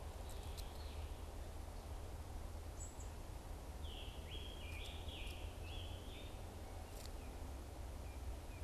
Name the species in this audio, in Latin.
unidentified bird, Piranga olivacea